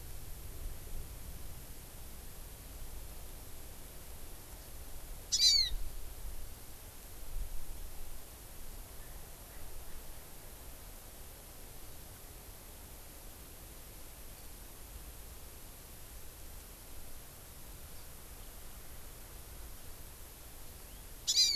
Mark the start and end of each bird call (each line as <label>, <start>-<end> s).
Hawaii Amakihi (Chlorodrepanis virens), 5.4-5.6 s
Hawaiian Hawk (Buteo solitarius), 5.4-5.8 s
Hawaii Amakihi (Chlorodrepanis virens), 21.4-21.6 s